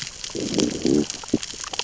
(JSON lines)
{"label": "biophony, growl", "recorder": "SoundTrap 600 or HydroMoth"}